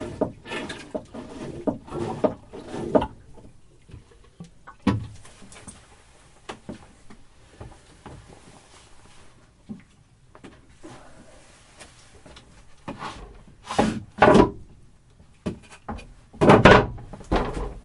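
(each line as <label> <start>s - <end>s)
A man is pumping a piston by hand. 0.0s - 5.2s
Random human movements in a restroom. 5.2s - 13.3s
A door is closing. 13.3s - 17.8s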